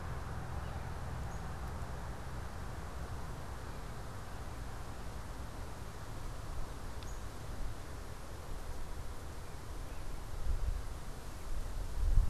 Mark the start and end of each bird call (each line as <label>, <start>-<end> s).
unidentified bird, 1.2-1.6 s
Northern Cardinal (Cardinalis cardinalis), 7.0-7.3 s